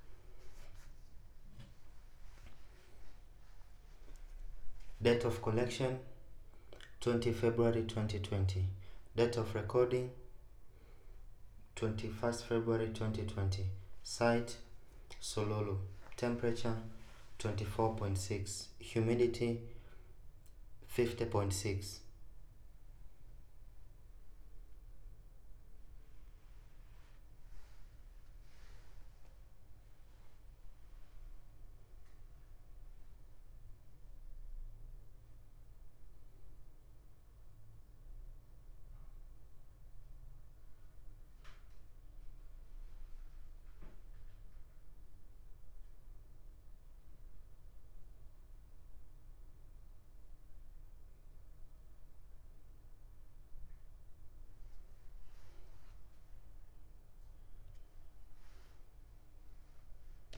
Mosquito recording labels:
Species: no mosquito; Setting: cup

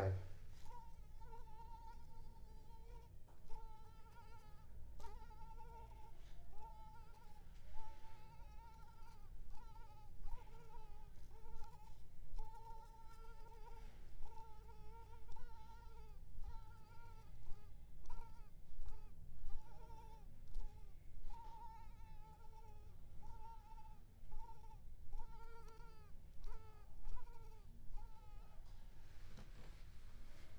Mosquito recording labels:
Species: Culex pipiens complex; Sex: female; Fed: unfed; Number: one; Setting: cup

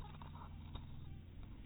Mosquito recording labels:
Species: mosquito; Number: one; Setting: cup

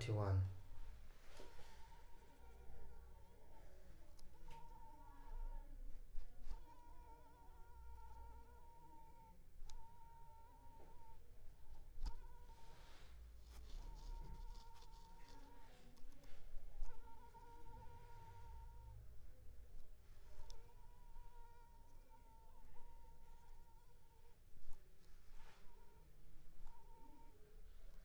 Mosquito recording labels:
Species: Culex pipiens complex; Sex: female; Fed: unfed; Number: one; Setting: cup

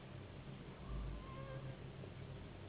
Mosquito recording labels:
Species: Anopheles gambiae s.s.; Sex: female; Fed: unfed; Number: one; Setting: insect culture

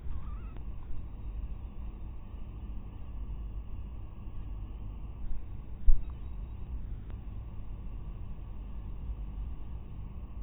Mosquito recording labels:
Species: mosquito; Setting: cup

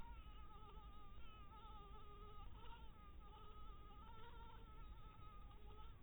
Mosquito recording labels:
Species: mosquito; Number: one; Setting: cup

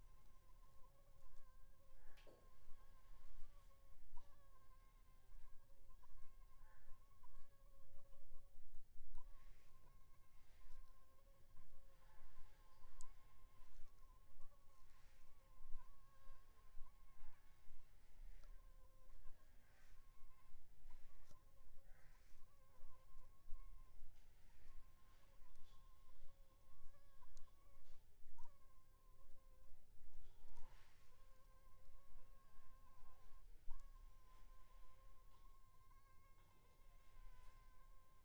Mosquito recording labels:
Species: Anopheles funestus s.s.; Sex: female; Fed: unfed; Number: one; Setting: cup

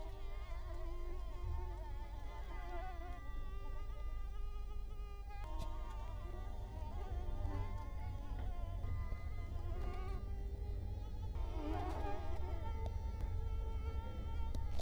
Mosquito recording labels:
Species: Culex quinquefasciatus; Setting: cup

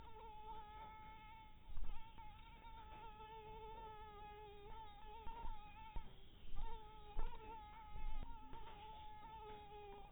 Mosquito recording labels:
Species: mosquito; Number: one; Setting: cup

